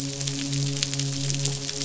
{"label": "biophony, midshipman", "recorder": "SoundTrap 500"}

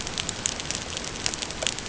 {"label": "ambient", "recorder": "HydroMoth"}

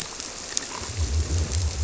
{"label": "biophony", "recorder": "SoundTrap 300"}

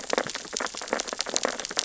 {"label": "biophony, sea urchins (Echinidae)", "recorder": "SoundTrap 600 or HydroMoth"}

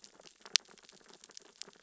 {"label": "biophony, sea urchins (Echinidae)", "recorder": "SoundTrap 600 or HydroMoth"}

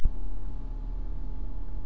{"label": "anthrophony, boat engine", "recorder": "SoundTrap 300"}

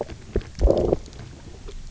{"label": "biophony, low growl", "recorder": "SoundTrap 300"}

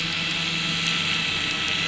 {"label": "anthrophony, boat engine", "recorder": "SoundTrap 500"}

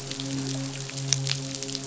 {"label": "biophony, midshipman", "recorder": "SoundTrap 500"}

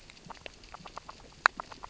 {"label": "biophony, grazing", "recorder": "SoundTrap 600 or HydroMoth"}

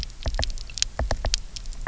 {"label": "biophony, knock", "recorder": "SoundTrap 300"}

